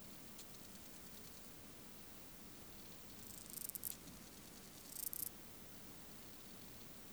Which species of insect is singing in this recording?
Chorthippus albomarginatus